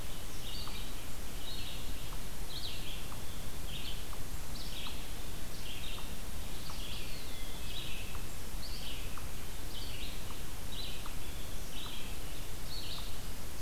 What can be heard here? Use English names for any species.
Red-eyed Vireo, unknown mammal, Eastern Wood-Pewee